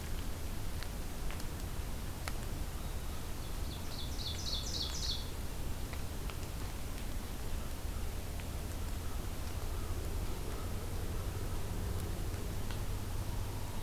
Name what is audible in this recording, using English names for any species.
Ovenbird